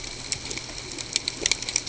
{"label": "ambient", "recorder": "HydroMoth"}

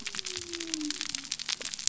{"label": "biophony", "recorder": "SoundTrap 300"}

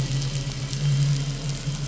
{"label": "anthrophony, boat engine", "recorder": "SoundTrap 500"}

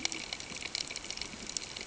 {"label": "ambient", "recorder": "HydroMoth"}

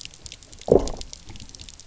{"label": "biophony, low growl", "recorder": "SoundTrap 300"}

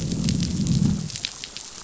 {"label": "biophony, growl", "recorder": "SoundTrap 500"}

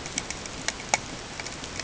{"label": "ambient", "recorder": "HydroMoth"}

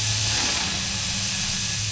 {"label": "anthrophony, boat engine", "recorder": "SoundTrap 500"}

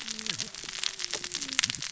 {"label": "biophony, cascading saw", "recorder": "SoundTrap 600 or HydroMoth"}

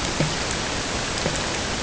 {"label": "ambient", "recorder": "HydroMoth"}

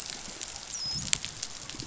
{"label": "biophony, dolphin", "recorder": "SoundTrap 500"}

